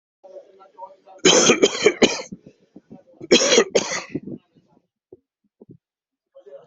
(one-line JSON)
{"expert_labels": [{"quality": "good", "cough_type": "unknown", "dyspnea": false, "wheezing": false, "stridor": false, "choking": false, "congestion": false, "nothing": true, "diagnosis": "obstructive lung disease", "severity": "mild"}], "age": 59, "gender": "male", "respiratory_condition": false, "fever_muscle_pain": false, "status": "healthy"}